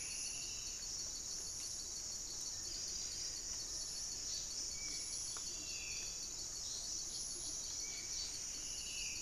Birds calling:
Black-spotted Bare-eye (Phlegopsis nigromaculata), Striped Woodcreeper (Xiphorhynchus obsoletus), Horned Screamer (Anhima cornuta), Spot-winged Antshrike (Pygiptila stellaris), Black-faced Antthrush (Formicarius analis), Buff-breasted Wren (Cantorchilus leucotis)

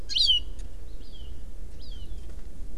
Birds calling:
Hawaii Amakihi (Chlorodrepanis virens)

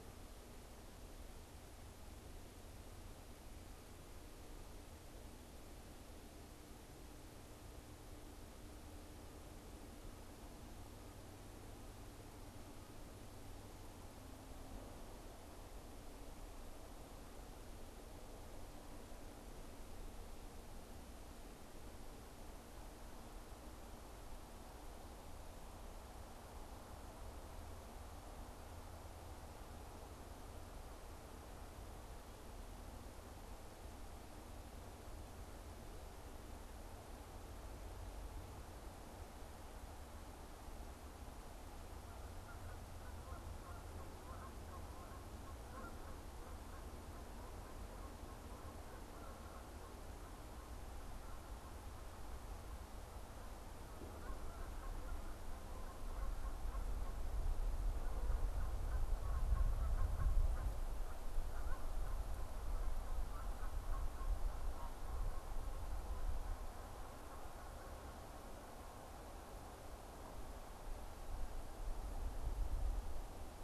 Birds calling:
Canada Goose (Branta canadensis)

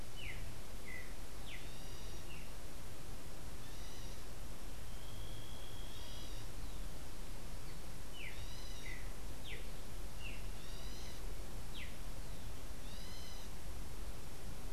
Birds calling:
Streaked Saltator (Saltator striatipectus), unidentified bird

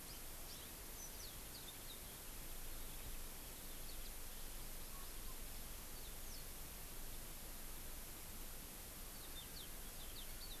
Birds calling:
Yellow-fronted Canary (Crithagra mozambica), House Finch (Haemorhous mexicanus)

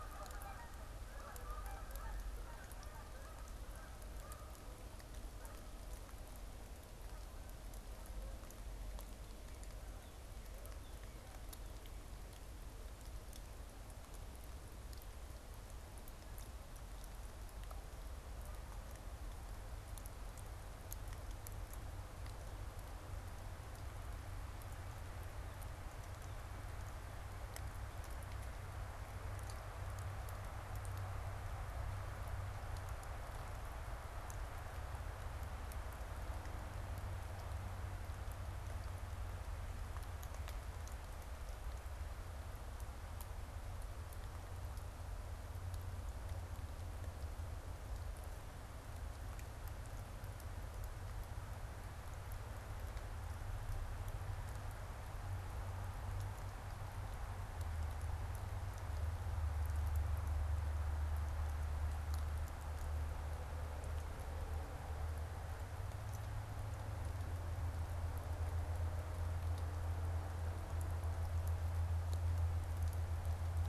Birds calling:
Canada Goose (Branta canadensis)

